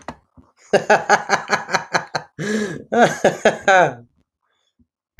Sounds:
Laughter